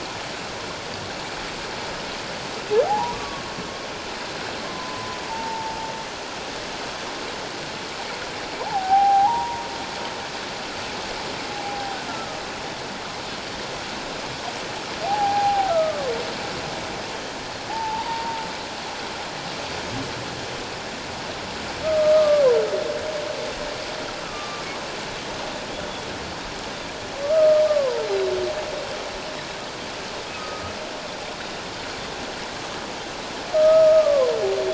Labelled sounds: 2.9	3.4	humpback whale, 0.78 to 1.2 kHz
4.7	5.7	humpback whale, 0.84 to 1.1 kHz
8.6	9.7	humpback whale, 0.78 to 1.0 kHz
11.5	12.4	humpback whale, 0.78 to 1.4 kHz
15.0	16.1	humpback whale, 0.78 to 1.4 kHz
17.7	18.4	humpback whale, 0.78 to 1.1 kHz
21.8	22.6	humpback whale, 0.91 to 1.3 kHz
24.2	24.6	humpback whale, 1.1 to 1.4 kHz
27.2	28.1	humpback whale, 0.88 to 1.3 kHz
28.1	28.3	Pacific white-sided dolphin, 3.8 to 4.1 kHz
30.3	30.7	humpback whale, 1.2 to 1.3 kHz
33.5	34.3	humpback whale, 0.97 to 1.3 kHz

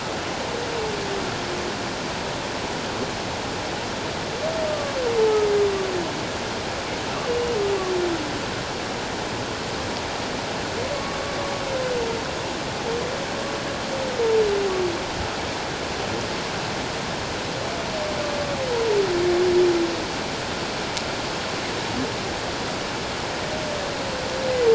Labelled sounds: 4.7	4.9	humpback whale, 1.1 to 1.2 kHz

